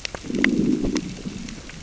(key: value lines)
label: biophony, growl
recorder: SoundTrap 600 or HydroMoth